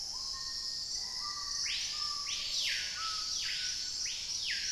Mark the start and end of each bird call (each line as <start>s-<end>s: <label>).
0.0s-1.6s: Dusky-throated Antshrike (Thamnomanes ardesiacus)
0.0s-4.7s: Hauxwell's Thrush (Turdus hauxwelli)
0.0s-4.7s: Screaming Piha (Lipaugus vociferans)
0.2s-2.3s: Black-faced Antthrush (Formicarius analis)